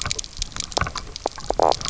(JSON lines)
{"label": "biophony, knock croak", "recorder": "SoundTrap 300"}